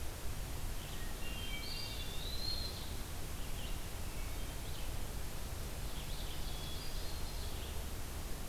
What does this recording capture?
Blue-headed Vireo, Hermit Thrush, Eastern Wood-Pewee